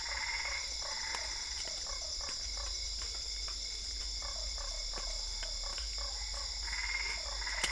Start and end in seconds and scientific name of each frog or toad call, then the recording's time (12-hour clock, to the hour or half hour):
0.0	1.7	Boana albopunctata
0.0	6.5	Boana lundii
6.5	7.7	Boana albopunctata
9:30pm